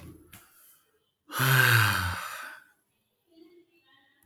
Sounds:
Sigh